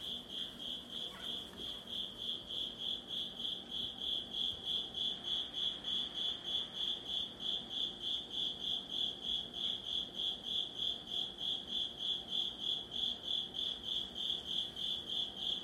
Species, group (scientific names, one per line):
Velarifictorus micado
Orthoptera